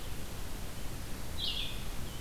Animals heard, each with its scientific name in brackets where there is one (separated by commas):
Red-eyed Vireo (Vireo olivaceus)